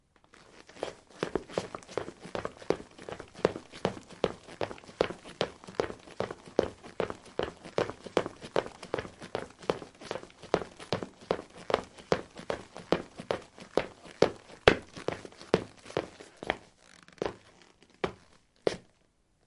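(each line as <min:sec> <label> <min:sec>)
0:00.0 Running on linoleum with trekking boots. 0:19.5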